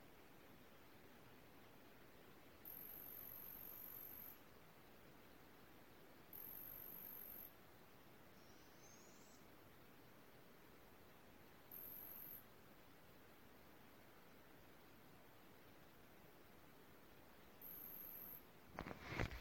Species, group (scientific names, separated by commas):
Cyphoderris monstrosa, Orthoptera